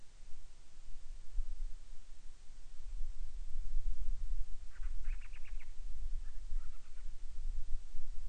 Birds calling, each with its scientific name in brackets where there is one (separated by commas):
Band-rumped Storm-Petrel (Hydrobates castro)